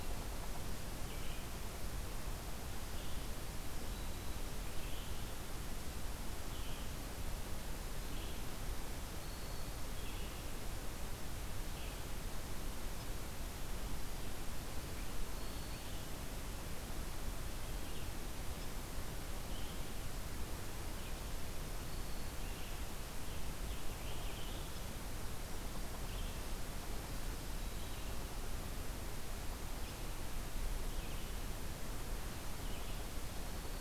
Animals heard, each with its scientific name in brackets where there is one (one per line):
Black-throated Green Warbler (Setophaga virens)
Red-eyed Vireo (Vireo olivaceus)